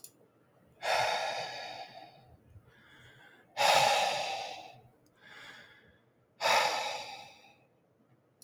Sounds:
Sigh